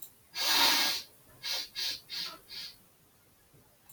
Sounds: Sniff